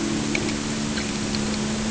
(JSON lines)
{"label": "anthrophony, boat engine", "recorder": "HydroMoth"}